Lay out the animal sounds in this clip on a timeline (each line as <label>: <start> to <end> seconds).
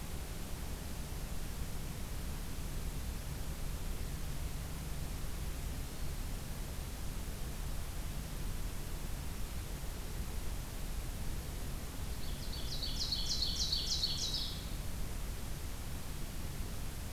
Black-throated Green Warbler (Setophaga virens): 5.8 to 6.5 seconds
Ovenbird (Seiurus aurocapilla): 11.9 to 14.7 seconds